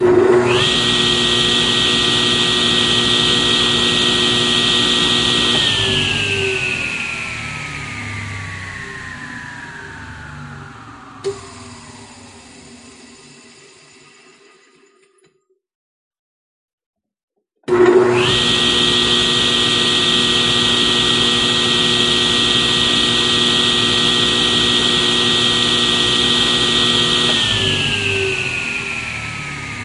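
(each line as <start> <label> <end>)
0.1 A table saw spins loudly, gradually slowing to a halt before restarting with a high-pitched whirring. 15.5
17.7 A table saw starts with a high-pitched whirring. 29.8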